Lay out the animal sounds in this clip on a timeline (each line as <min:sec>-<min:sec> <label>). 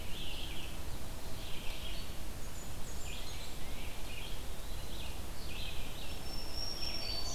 0:00.0-0:07.3 Red-eyed Vireo (Vireo olivaceus)
0:02.0-0:03.6 Blackburnian Warbler (Setophaga fusca)
0:03.1-0:04.1 Tufted Titmouse (Baeolophus bicolor)
0:04.2-0:05.2 Eastern Wood-Pewee (Contopus virens)
0:05.9-0:07.3 Black-throated Green Warbler (Setophaga virens)